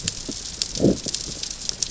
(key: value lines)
label: biophony, growl
recorder: SoundTrap 600 or HydroMoth